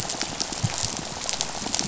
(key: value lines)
label: biophony, rattle
recorder: SoundTrap 500